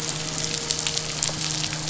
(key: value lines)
label: biophony, midshipman
recorder: SoundTrap 500